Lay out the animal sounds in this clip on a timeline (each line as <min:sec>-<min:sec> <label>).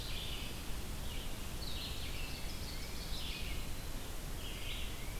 0:00.0-0:05.2 Red-eyed Vireo (Vireo olivaceus)
0:01.5-0:03.3 Ovenbird (Seiurus aurocapilla)